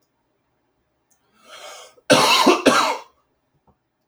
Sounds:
Cough